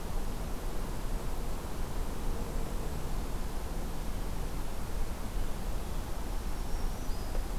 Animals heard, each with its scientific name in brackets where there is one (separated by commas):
Black-throated Green Warbler (Setophaga virens)